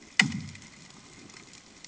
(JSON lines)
{"label": "anthrophony, bomb", "recorder": "HydroMoth"}